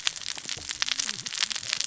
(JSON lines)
{"label": "biophony, cascading saw", "recorder": "SoundTrap 600 or HydroMoth"}